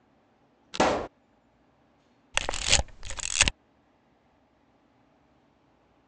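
At 0.72 seconds, an explosion can be heard. Then at 2.34 seconds, the sound of a camera is audible.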